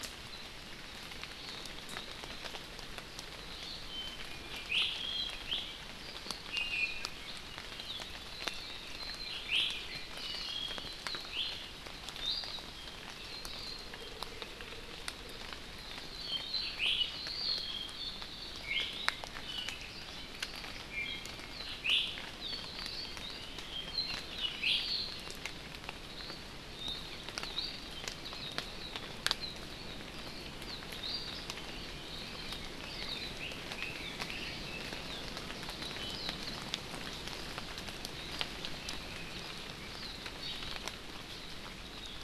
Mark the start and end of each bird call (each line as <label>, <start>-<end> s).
Iiwi (Drepanis coccinea), 4.7-4.9 s
Iiwi (Drepanis coccinea), 6.5-7.2 s
Iiwi (Drepanis coccinea), 9.4-9.7 s
Hawaii Amakihi (Chlorodrepanis virens), 10.1-10.6 s
Iiwi (Drepanis coccinea), 11.3-11.6 s
Iiwi (Drepanis coccinea), 12.2-12.6 s
Iiwi (Drepanis coccinea), 16.8-17.1 s
Iiwi (Drepanis coccinea), 20.9-21.5 s
Iiwi (Drepanis coccinea), 21.8-22.1 s
Iiwi (Drepanis coccinea), 24.6-24.8 s
Red-billed Leiothrix (Leiothrix lutea), 32.6-34.9 s